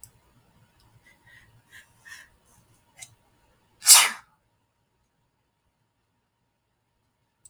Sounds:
Sneeze